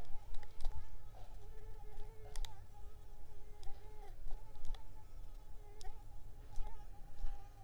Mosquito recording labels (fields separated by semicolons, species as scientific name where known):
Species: Mansonia uniformis; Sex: female; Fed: unfed; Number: one; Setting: cup